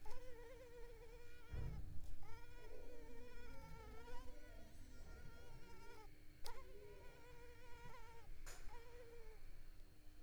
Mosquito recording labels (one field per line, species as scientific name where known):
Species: Culex pipiens complex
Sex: female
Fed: unfed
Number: one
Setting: cup